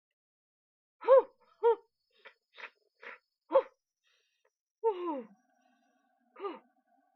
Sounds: Sniff